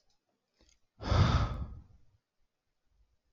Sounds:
Sigh